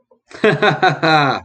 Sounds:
Laughter